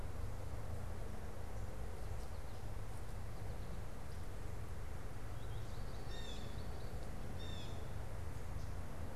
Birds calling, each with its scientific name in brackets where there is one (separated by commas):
American Goldfinch (Spinus tristis), Blue Jay (Cyanocitta cristata)